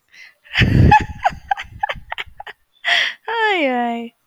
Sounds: Laughter